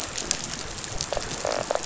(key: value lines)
label: biophony, rattle response
recorder: SoundTrap 500